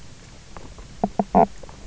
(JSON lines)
{"label": "biophony, knock croak", "recorder": "SoundTrap 300"}